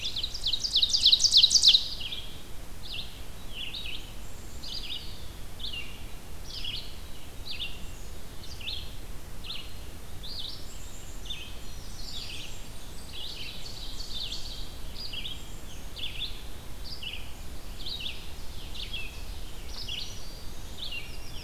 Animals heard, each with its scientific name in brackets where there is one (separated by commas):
Black-throated Green Warbler (Setophaga virens), Black-capped Chickadee (Poecile atricapillus), Black-throated Blue Warbler (Setophaga caerulescens), Blackburnian Warbler (Setophaga fusca), Eastern Wood-Pewee (Contopus virens), Red-eyed Vireo (Vireo olivaceus), Ovenbird (Seiurus aurocapilla)